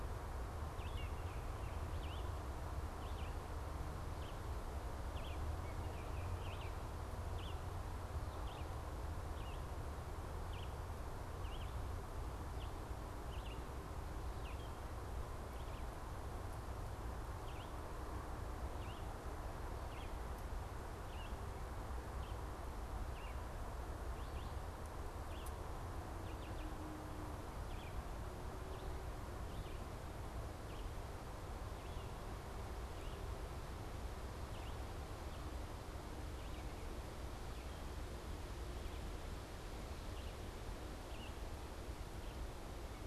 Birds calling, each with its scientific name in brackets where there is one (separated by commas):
Baltimore Oriole (Icterus galbula), Red-eyed Vireo (Vireo olivaceus)